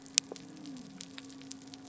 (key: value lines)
label: biophony
recorder: SoundTrap 300